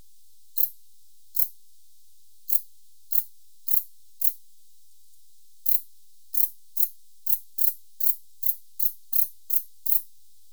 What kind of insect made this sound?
orthopteran